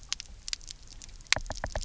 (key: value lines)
label: biophony, knock
recorder: SoundTrap 300